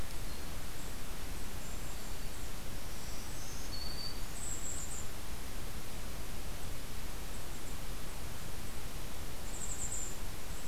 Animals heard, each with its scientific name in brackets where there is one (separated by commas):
Black-throated Green Warbler (Setophaga virens), Golden-crowned Kinglet (Regulus satrapa)